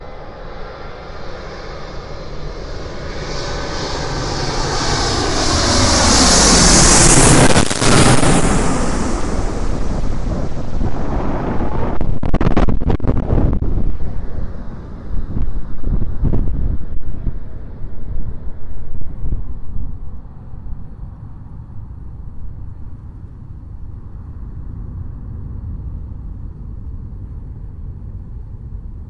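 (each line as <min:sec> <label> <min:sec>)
0:00.0 A plane flies by loudly. 0:10.5
0:10.5 Loud distorted wind noise. 0:20.5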